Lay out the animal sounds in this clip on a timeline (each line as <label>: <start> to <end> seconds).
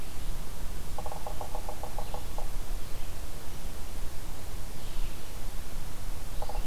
Red-eyed Vireo (Vireo olivaceus): 0.0 to 6.7 seconds
Yellow-bellied Sapsucker (Sphyrapicus varius): 0.9 to 2.6 seconds